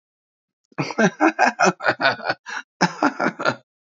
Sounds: Laughter